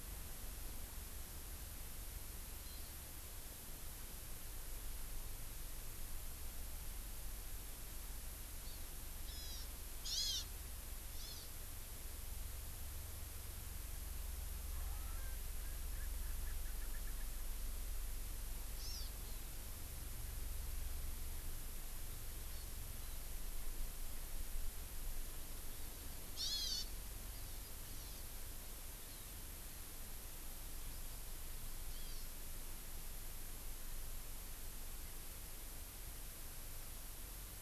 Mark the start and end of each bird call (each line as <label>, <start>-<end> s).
Hawaii Amakihi (Chlorodrepanis virens), 2.6-2.9 s
Hawaiian Hawk (Buteo solitarius), 9.3-9.7 s
Hawaiian Hawk (Buteo solitarius), 10.0-10.5 s
Hawaiian Hawk (Buteo solitarius), 11.2-11.5 s
Erckel's Francolin (Pternistis erckelii), 14.7-17.3 s
Hawaii Amakihi (Chlorodrepanis virens), 18.8-19.1 s
Hawaii Amakihi (Chlorodrepanis virens), 26.4-26.9 s
Hawaii Amakihi (Chlorodrepanis virens), 27.3-28.3 s
Hawaii Amakihi (Chlorodrepanis virens), 30.6-32.3 s